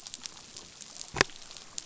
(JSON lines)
{"label": "biophony", "recorder": "SoundTrap 500"}